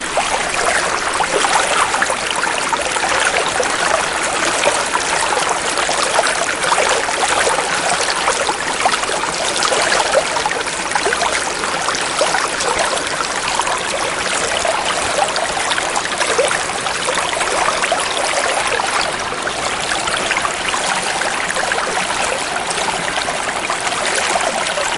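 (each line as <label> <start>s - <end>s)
A river splashes loudly. 0.0s - 25.0s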